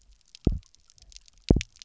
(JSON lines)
{"label": "biophony, double pulse", "recorder": "SoundTrap 300"}